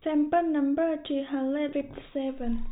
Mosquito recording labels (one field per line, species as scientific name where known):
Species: no mosquito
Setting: cup